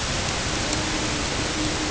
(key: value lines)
label: ambient
recorder: HydroMoth